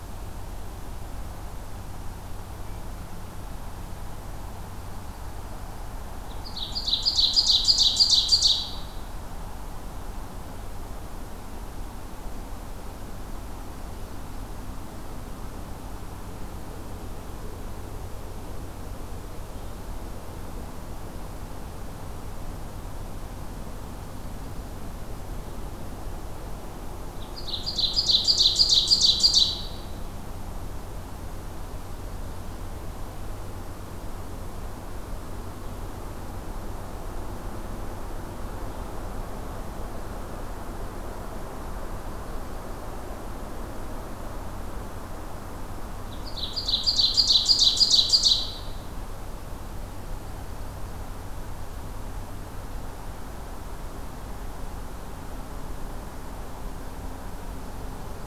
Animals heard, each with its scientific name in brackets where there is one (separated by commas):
Ovenbird (Seiurus aurocapilla), Hermit Thrush (Catharus guttatus)